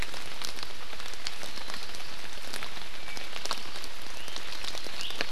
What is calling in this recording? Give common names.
Apapane, Iiwi